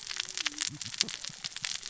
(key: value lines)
label: biophony, cascading saw
recorder: SoundTrap 600 or HydroMoth